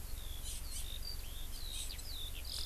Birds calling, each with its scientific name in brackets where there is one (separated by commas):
Hawaii Amakihi (Chlorodrepanis virens), Eurasian Skylark (Alauda arvensis)